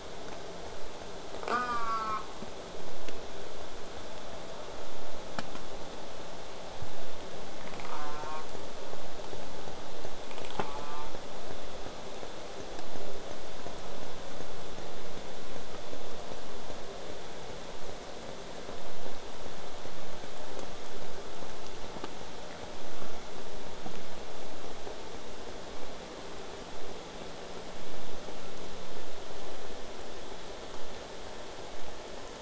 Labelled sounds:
1.5	2.2	killer whale, southern resident, J pod, call S04, 0.23 to 8.0 kHz
7.9	8.5	killer whale, southern resident, J pod, call S04, 0.39 to 4.4 kHz
10.6	11.1	killer whale, southern resident, J pod, call S04, 0.54 to 3.7 kHz

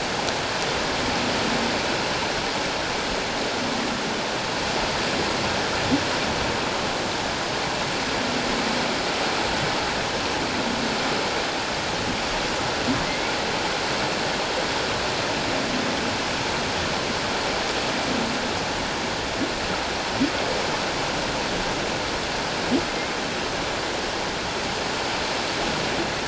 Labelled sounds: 13.0	13.3	humpback whale, 1.9 to 2.4 kHz

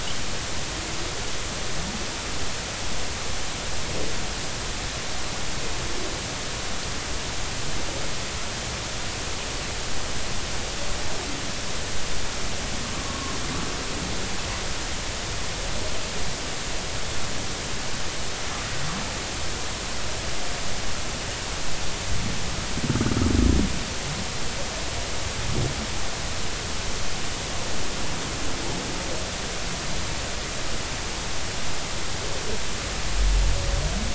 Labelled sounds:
13.0	13.3	humpback whale, 1.0 to 1.2 kHz

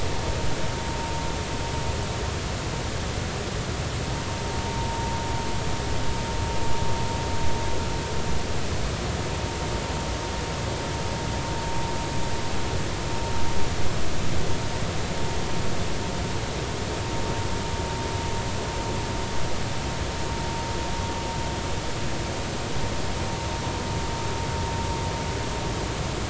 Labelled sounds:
4.7	5.1	vessel noise, 0.86 to 1.1 kHz

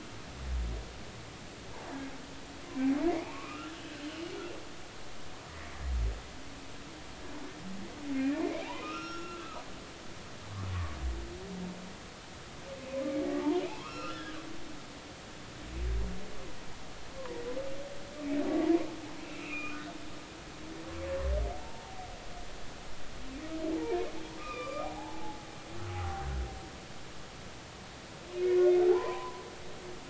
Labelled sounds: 3.1	3.7	humpback whale, 1.0 to 2.7 kHz
8.4	9.6	humpback whale, 0.80 to 5.7 kHz
13.6	14.4	humpback whale, 0.80 to 3.6 kHz
17.2	17.4	humpback whale, 0.86 to 1.2 kHz
19.2	19.8	humpback whale, 1.1 to 2.8 kHz
21.6	22.0	humpback whale, 0.80 to 0.96 kHz
24.4	25.5	humpback whale, 0.80 to 7.2 kHz
25.9	26.3	humpback whale, 0.80 to 0.86 kHz
28.3	29.4	humpback whale, 0.80 to 2.3 kHz

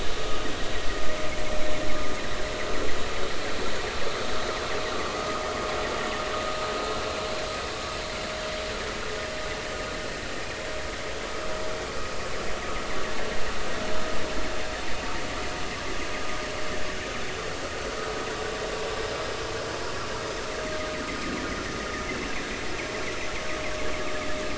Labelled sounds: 5.2	5.4	vessel noise, 1.2 to 1.3 kHz

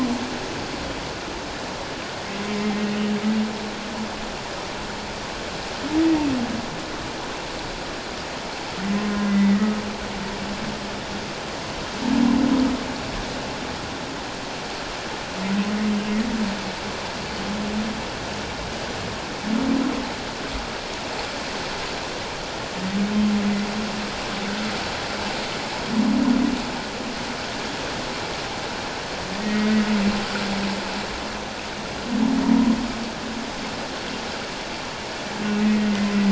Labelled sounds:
2.5	2.8	humpback whale, 2.0 to 2.2 kHz
9.2	9.8	humpback whale, 1.2 to 2.1 kHz
29.4	29.7	humpback whale, 1.8 to 2.2 kHz
35.6	35.9	humpback whale, 1.8 to 2.0 kHz

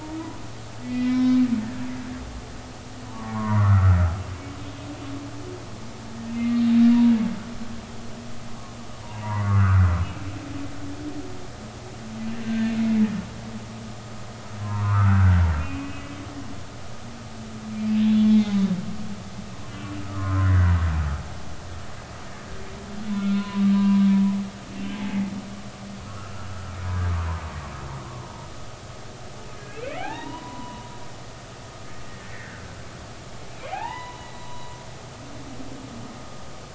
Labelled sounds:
0.8	1.4	humpback whale, 0.96 to 3.9 kHz
3.1	4.0	humpback whale, 0.80 to 1.5 kHz
6.3	6.6	humpback whale, 2.0 to 2.2 kHz
6.9	7.1	humpback whale, 0.90 to 1.0 kHz
9.0	10.0	humpback whale, 0.83 to 2.1 kHz
14.6	16.1	humpback whale, 0.90 to 2.9 kHz
18.0	18.5	humpback whale, 3.4 to 3.9 kHz
20.1	20.8	humpback whale, 0.99 to 2.0 kHz
23.1	24.0	humpback whale, 0.93 to 3.6 kHz
26.1	26.7	humpback whale, 1.2 to 1.5 kHz
29.6	30.9	humpback whale, 0.80 to 3.0 kHz
32.3	32.6	humpback whale, 1.4 to 2.0 kHz
33.5	34.8	humpback whale, 0.80 to 4.0 kHz

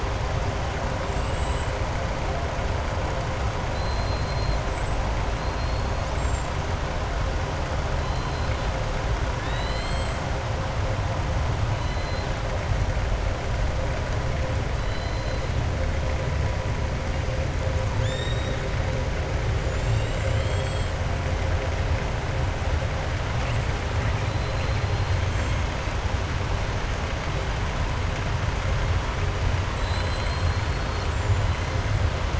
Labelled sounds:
1.0	1.7	killer whale, southern resident, 6.7 to 7.8 kHz
3.6	4.6	killer whale, southern resident, 3.9 to 4.2 kHz
6.0	6.5	killer whale, southern resident, 6.7 to 7.8 kHz
8.0	8.6	killer whale, southern resident, 3.1 to 5.1 kHz
9.3	10.2	killer whale, southern resident, 1.7 to 7.8 kHz
11.7	12.3	killer whale, southern resident, 3.0 to 4.8 kHz
14.8	15.4	killer whale, southern resident, 3.0 to 5.0 kHz
17.9	18.6	killer whale, southern resident, 1.8 to 7.6 kHz
19.6	20.5	killer whale, southern resident, 1.9 to 7.7 kHz
24.1	25.2	killer whale, southern resident, 3.2 to 4.7 kHz
29.6	31.4	killer whale, southern resident, 2.3 to 8.0 kHz

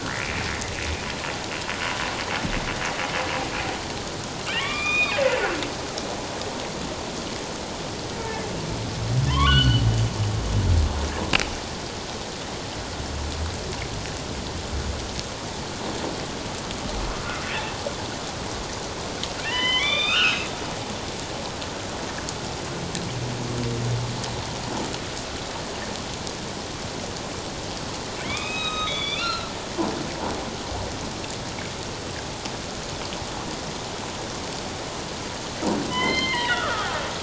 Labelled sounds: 0.2	0.5	humpback whale, 2.0 to 2.5 kHz
4.4	5.2	humpback whale, 1.0 to 3.8 kHz
9.3	9.8	humpback whale, 0.94 to 4.5 kHz
19.4	20.5	humpback whale, 0.91 to 4.1 kHz
28.2	29.5	humpback whale, 1.0 to 7.7 kHz
35.9	36.9	humpback whale, 0.91 to 4.2 kHz

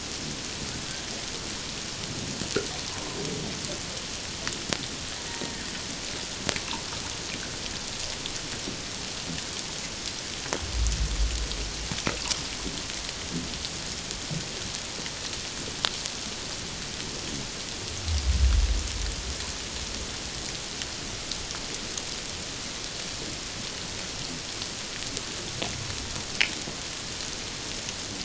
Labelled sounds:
2.9	3.2	killer whale, Bigg's (transient), 0.88 to 1.1 kHz
5.3	5.6	killer whale, Bigg's (transient), 0.88 to 0.97 kHz

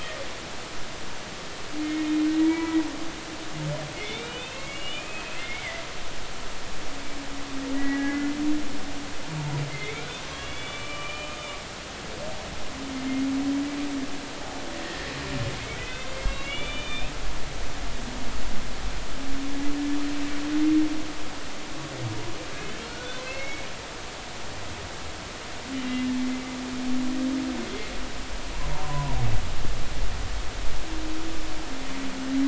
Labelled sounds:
1.8	2.8	humpback whale, 0.90 to 2.4 kHz
4.0	5.8	humpback whale, 1.9 to 3.9 kHz
7.7	8.3	humpback whale, 1.6 to 2.1 kHz
9.7	11.4	humpback whale, 1.1 to 3.6 kHz
14.8	17.1	humpback whale, 1.7 to 3.7 kHz
22.9	23.7	humpback whale, 1.3 to 2.3 kHz
25.8	26.1	humpback whale, 2.7 to 2.8 kHz
28.7	29.2	humpback whale, 0.86 to 1.1 kHz

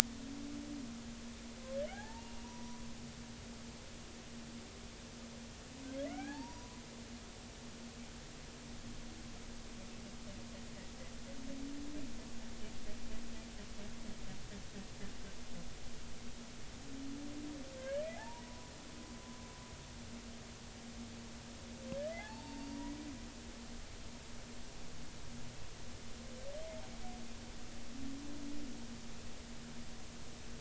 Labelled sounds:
1.9	2.8	humpback whale, 0.80 to 2.9 kHz
6.0	6.8	humpback whale, 0.80 to 2.5 kHz
17.8	18.7	humpback whale, 0.80 to 2.1 kHz
22.2	22.9	humpback whale, 0.80 to 4.6 kHz

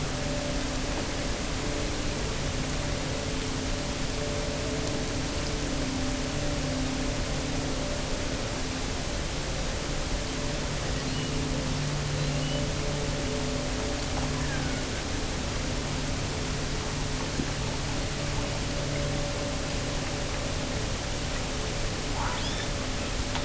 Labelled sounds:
10.8	11.4	killer whale, offshore, 1.7 to 4.7 kHz
12.2	12.8	killer whale, offshore, 2.6 to 4.5 kHz
14.2	15.0	killer whale, offshore, 0.70 to 2.5 kHz
22.1	22.9	killer whale, offshore, 0.70 to 5.6 kHz

